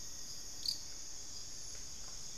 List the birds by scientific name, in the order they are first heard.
Formicarius rufifrons, Turdus hauxwelli